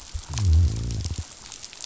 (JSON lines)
{"label": "biophony", "recorder": "SoundTrap 500"}